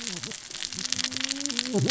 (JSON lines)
{"label": "biophony, cascading saw", "recorder": "SoundTrap 600 or HydroMoth"}